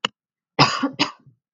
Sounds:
Cough